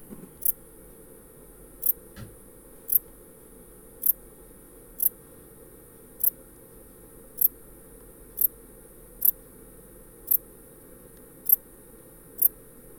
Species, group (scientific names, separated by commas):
Pholidoptera fallax, Orthoptera